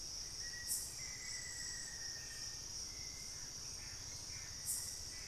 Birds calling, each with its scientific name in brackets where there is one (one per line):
Gray Antbird (Cercomacra cinerascens)
Plain-winged Antshrike (Thamnophilus schistaceus)
Black-faced Antthrush (Formicarius analis)
Hauxwell's Thrush (Turdus hauxwelli)